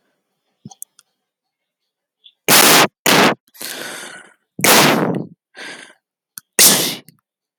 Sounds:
Sneeze